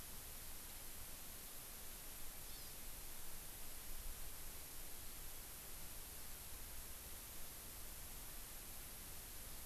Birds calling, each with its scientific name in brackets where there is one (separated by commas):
Hawaii Amakihi (Chlorodrepanis virens)